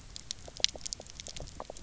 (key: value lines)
label: biophony, knock croak
recorder: SoundTrap 300